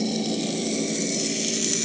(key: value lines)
label: anthrophony, boat engine
recorder: HydroMoth